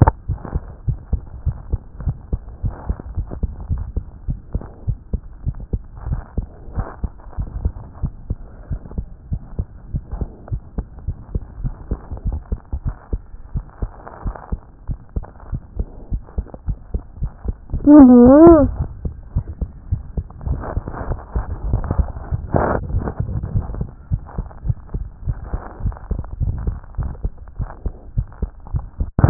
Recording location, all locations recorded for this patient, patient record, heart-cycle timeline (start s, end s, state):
aortic valve (AV)
aortic valve (AV)+aortic valve (AV)+aortic valve (AV)+mitral valve (MV)
#Age: Child
#Sex: Male
#Height: 99.0 cm
#Weight: 15.5 kg
#Pregnancy status: False
#Murmur: Absent
#Murmur locations: nan
#Most audible location: nan
#Systolic murmur timing: nan
#Systolic murmur shape: nan
#Systolic murmur grading: nan
#Systolic murmur pitch: nan
#Systolic murmur quality: nan
#Diastolic murmur timing: nan
#Diastolic murmur shape: nan
#Diastolic murmur grading: nan
#Diastolic murmur pitch: nan
#Diastolic murmur quality: nan
#Outcome: Normal
#Campaign: 2014 screening campaign
0.00	0.70	unannotated
0.70	0.86	diastole
0.86	0.98	S1
0.98	1.12	systole
1.12	1.22	S2
1.22	1.44	diastole
1.44	1.56	S1
1.56	1.70	systole
1.70	1.80	S2
1.80	2.04	diastole
2.04	2.16	S1
2.16	2.32	systole
2.32	2.40	S2
2.40	2.62	diastole
2.62	2.74	S1
2.74	2.88	systole
2.88	2.96	S2
2.96	3.16	diastole
3.16	3.26	S1
3.26	3.42	systole
3.42	3.50	S2
3.50	3.70	diastole
3.70	3.82	S1
3.82	3.96	systole
3.96	4.04	S2
4.04	4.26	diastole
4.26	4.38	S1
4.38	4.54	systole
4.54	4.62	S2
4.62	4.86	diastole
4.86	4.98	S1
4.98	5.12	systole
5.12	5.22	S2
5.22	5.44	diastole
5.44	5.56	S1
5.56	5.72	systole
5.72	5.80	S2
5.80	6.08	diastole
6.08	6.20	S1
6.20	6.36	systole
6.36	6.46	S2
6.46	6.76	diastole
6.76	6.86	S1
6.86	7.02	systole
7.02	7.10	S2
7.10	7.38	diastole
7.38	7.48	S1
7.48	7.62	systole
7.62	7.72	S2
7.72	8.02	diastole
8.02	8.12	S1
8.12	8.30	systole
8.30	8.38	S2
8.38	8.70	diastole
8.70	8.80	S1
8.80	8.96	systole
8.96	9.06	S2
9.06	9.30	diastole
9.30	9.42	S1
9.42	9.58	systole
9.58	9.66	S2
9.66	9.92	diastole
9.92	10.02	S1
10.02	10.18	systole
10.18	10.28	S2
10.28	10.50	diastole
10.50	10.62	S1
10.62	10.76	systole
10.76	10.86	S2
10.86	11.06	diastole
11.06	11.18	S1
11.18	11.34	systole
11.34	11.42	S2
11.42	11.62	diastole
11.62	11.74	S1
11.74	11.90	systole
11.90	11.98	S2
11.98	12.26	diastole
12.26	12.38	S1
12.38	12.50	systole
12.50	12.58	S2
12.58	12.84	diastole
12.84	12.94	S1
12.94	13.12	systole
13.12	13.22	S2
13.22	13.54	diastole
13.54	13.64	S1
13.64	13.80	systole
13.80	13.90	S2
13.90	14.24	diastole
14.24	14.36	S1
14.36	14.52	systole
14.52	14.60	S2
14.60	14.88	diastole
14.88	14.98	S1
14.98	15.16	systole
15.16	15.24	S2
15.24	15.50	diastole
15.50	15.62	S1
15.62	15.78	systole
15.78	15.88	S2
15.88	16.10	diastole
16.10	16.22	S1
16.22	16.36	systole
16.36	16.46	S2
16.46	16.66	diastole
16.66	16.78	S1
16.78	16.92	systole
16.92	17.02	S2
17.02	17.22	diastole
17.22	17.32	S1
17.32	17.46	systole
17.46	17.54	S2
17.54	17.72	diastole
17.72	29.30	unannotated